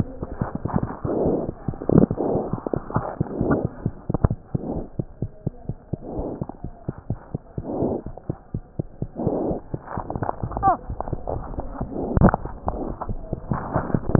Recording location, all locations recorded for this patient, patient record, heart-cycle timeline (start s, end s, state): mitral valve (MV)
aortic valve (AV)+pulmonary valve (PV)+tricuspid valve (TV)+mitral valve (MV)
#Age: Infant
#Sex: Female
#Height: 97.0 cm
#Weight: 7.1 kg
#Pregnancy status: False
#Murmur: Absent
#Murmur locations: nan
#Most audible location: nan
#Systolic murmur timing: nan
#Systolic murmur shape: nan
#Systolic murmur grading: nan
#Systolic murmur pitch: nan
#Systolic murmur quality: nan
#Diastolic murmur timing: nan
#Diastolic murmur shape: nan
#Diastolic murmur grading: nan
#Diastolic murmur pitch: nan
#Diastolic murmur quality: nan
#Outcome: Normal
#Campaign: 2015 screening campaign
0.00	4.93	unannotated
4.93	5.04	S2
5.04	5.20	diastole
5.20	5.30	S1
5.30	5.42	systole
5.42	5.52	S2
5.52	5.66	diastole
5.66	5.77	S1
5.77	5.91	systole
5.91	6.00	S2
6.00	6.15	diastole
6.15	6.26	S1
6.26	6.39	systole
6.39	6.46	S2
6.46	6.61	diastole
6.61	6.71	S1
6.71	6.86	systole
6.86	6.96	S2
6.96	7.09	diastole
7.09	7.18	S1
7.18	7.30	systole
7.30	7.39	S2
7.39	7.58	diastole
7.58	7.66	S1
7.66	7.82	systole
7.82	7.94	S2
7.94	8.05	diastole
8.05	8.17	S1
8.17	8.27	systole
8.27	8.34	S2
8.34	8.51	diastole
8.51	8.64	S1
8.64	8.76	systole
8.76	8.88	S2
8.88	9.01	diastole
9.01	14.19	unannotated